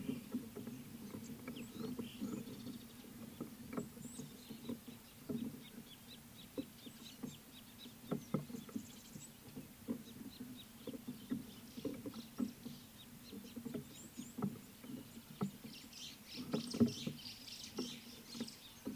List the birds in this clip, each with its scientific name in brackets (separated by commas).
White-browed Sparrow-Weaver (Plocepasser mahali), Scarlet-chested Sunbird (Chalcomitra senegalensis), Red-cheeked Cordonbleu (Uraeginthus bengalus)